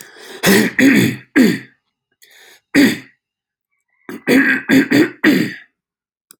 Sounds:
Throat clearing